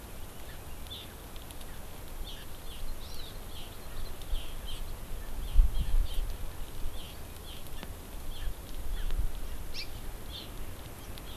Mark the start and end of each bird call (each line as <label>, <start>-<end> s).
Hawaii Amakihi (Chlorodrepanis virens), 0.8-1.0 s
Hawaii Amakihi (Chlorodrepanis virens), 2.2-3.6 s
Hawaii Amakihi (Chlorodrepanis virens), 4.6-4.8 s
Hawaii Amakihi (Chlorodrepanis virens), 5.4-6.2 s
Hawaii Amakihi (Chlorodrepanis virens), 6.9-7.1 s
Hawaii Amakihi (Chlorodrepanis virens), 7.4-7.6 s
Hawaii Amakihi (Chlorodrepanis virens), 8.3-8.4 s
Hawaii Amakihi (Chlorodrepanis virens), 8.9-9.0 s
Hawaii Amakihi (Chlorodrepanis virens), 9.7-9.8 s
Hawaii Amakihi (Chlorodrepanis virens), 10.2-10.4 s